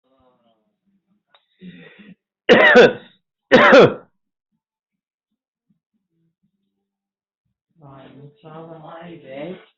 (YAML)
expert_labels:
- quality: ok
  cough_type: unknown
  dyspnea: false
  wheezing: false
  stridor: false
  choking: false
  congestion: false
  nothing: true
  diagnosis: healthy cough
  severity: pseudocough/healthy cough
age: 50
gender: male
respiratory_condition: true
fever_muscle_pain: false
status: COVID-19